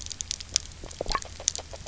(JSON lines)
{"label": "biophony, grazing", "recorder": "SoundTrap 300"}